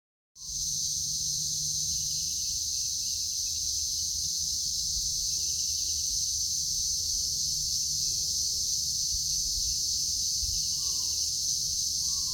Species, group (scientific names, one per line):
Psaltoda claripennis
Cicadidae